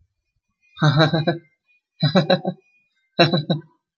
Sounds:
Laughter